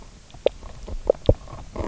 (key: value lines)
label: biophony, knock croak
recorder: SoundTrap 300